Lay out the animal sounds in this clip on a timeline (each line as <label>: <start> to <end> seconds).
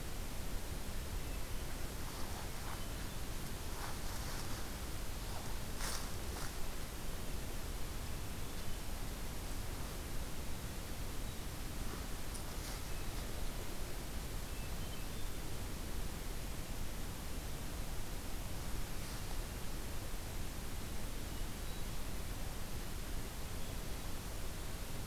Hermit Thrush (Catharus guttatus): 2.5 to 3.6 seconds
Hermit Thrush (Catharus guttatus): 14.4 to 15.6 seconds
Hermit Thrush (Catharus guttatus): 21.3 to 22.4 seconds